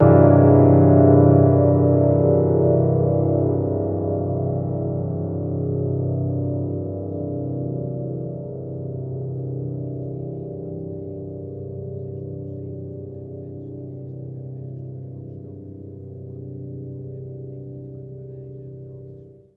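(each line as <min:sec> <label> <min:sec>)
0:00.1 A deep, resonant chord plays on the piano and slowly fades as its intensity diminishes over time. 0:18.4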